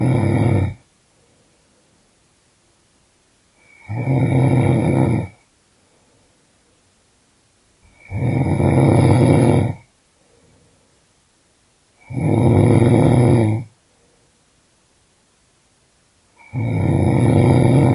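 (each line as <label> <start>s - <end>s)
A man snores loudly. 0.0s - 0.8s
A man snores loudly. 3.9s - 5.3s
A man snores loudly. 8.1s - 9.8s
A man snores loudly. 12.1s - 13.7s
A man snores loudly. 16.5s - 17.9s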